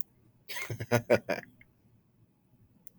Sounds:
Laughter